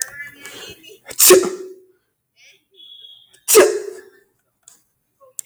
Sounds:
Sneeze